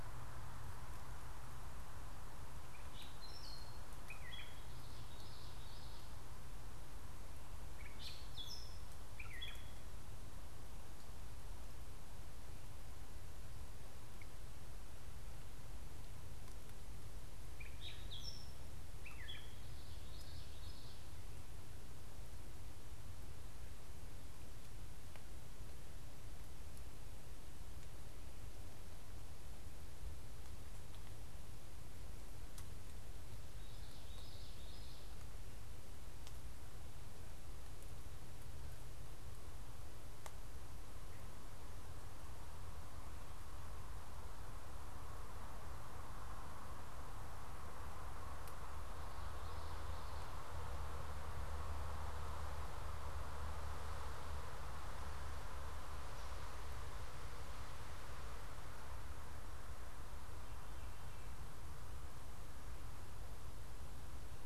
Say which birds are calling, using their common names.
Gray Catbird, Common Yellowthroat